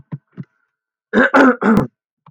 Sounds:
Cough